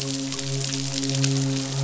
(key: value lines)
label: biophony, midshipman
recorder: SoundTrap 500